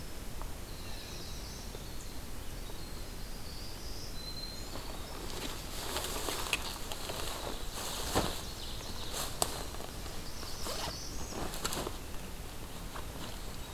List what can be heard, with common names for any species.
Winter Wren, Northern Parula, Blue Jay, Black-throated Green Warbler, Ovenbird